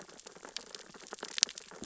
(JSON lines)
{"label": "biophony, sea urchins (Echinidae)", "recorder": "SoundTrap 600 or HydroMoth"}